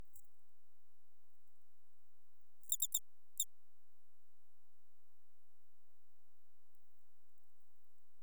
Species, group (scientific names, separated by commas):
Eugryllodes escalerae, Orthoptera